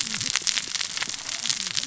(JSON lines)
{"label": "biophony, cascading saw", "recorder": "SoundTrap 600 or HydroMoth"}